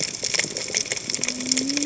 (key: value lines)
label: biophony, cascading saw
recorder: HydroMoth